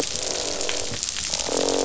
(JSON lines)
{"label": "biophony, croak", "recorder": "SoundTrap 500"}